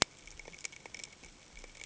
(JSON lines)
{"label": "ambient", "recorder": "HydroMoth"}